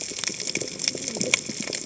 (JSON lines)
{"label": "biophony, cascading saw", "recorder": "HydroMoth"}